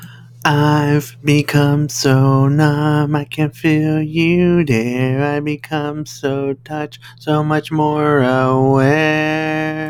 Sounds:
Sigh